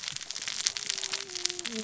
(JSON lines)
{"label": "biophony, cascading saw", "recorder": "SoundTrap 600 or HydroMoth"}